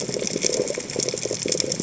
{"label": "biophony, chatter", "recorder": "HydroMoth"}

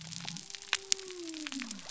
{"label": "biophony", "recorder": "SoundTrap 300"}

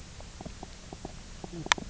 {"label": "biophony, knock croak", "recorder": "SoundTrap 300"}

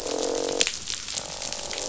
{"label": "biophony, croak", "recorder": "SoundTrap 500"}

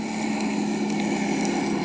{"label": "ambient", "recorder": "HydroMoth"}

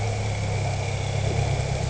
{"label": "anthrophony, boat engine", "recorder": "HydroMoth"}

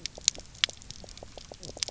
{"label": "biophony, knock croak", "recorder": "SoundTrap 300"}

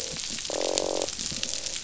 {"label": "biophony, croak", "recorder": "SoundTrap 500"}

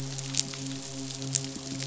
{"label": "biophony, midshipman", "recorder": "SoundTrap 500"}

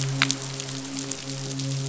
{"label": "biophony, midshipman", "recorder": "SoundTrap 500"}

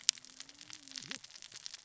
{"label": "biophony, cascading saw", "recorder": "SoundTrap 600 or HydroMoth"}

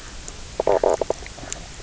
{"label": "biophony, knock croak", "recorder": "SoundTrap 300"}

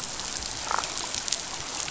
{"label": "biophony, damselfish", "recorder": "SoundTrap 500"}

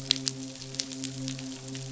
{"label": "biophony, midshipman", "recorder": "SoundTrap 500"}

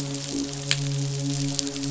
{"label": "biophony, midshipman", "recorder": "SoundTrap 500"}
{"label": "biophony", "recorder": "SoundTrap 500"}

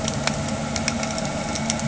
{"label": "anthrophony, boat engine", "recorder": "HydroMoth"}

